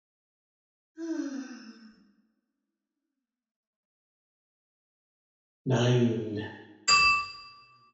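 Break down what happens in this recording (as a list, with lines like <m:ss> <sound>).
0:01 someone sighs quietly
0:06 a voice says "Nine"
0:07 the sound of glass can be heard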